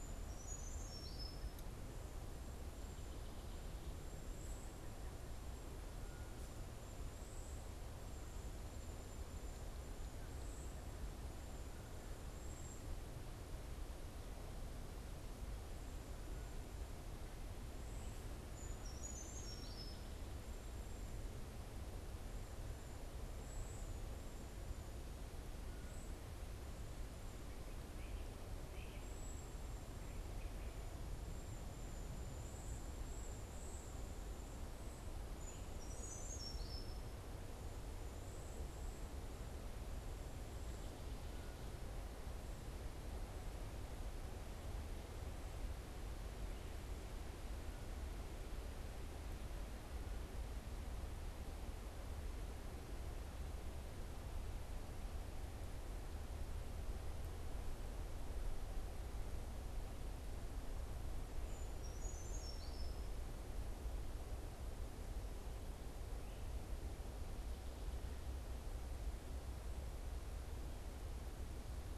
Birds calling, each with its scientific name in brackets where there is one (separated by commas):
Cedar Waxwing (Bombycilla cedrorum), Brown Creeper (Certhia americana)